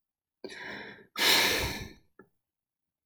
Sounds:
Sigh